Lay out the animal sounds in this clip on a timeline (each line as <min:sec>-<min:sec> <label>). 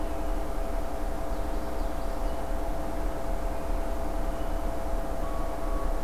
0:01.0-0:02.9 Common Yellowthroat (Geothlypis trichas)